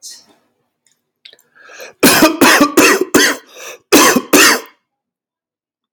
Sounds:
Cough